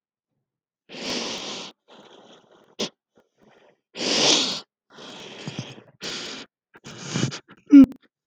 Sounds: Sigh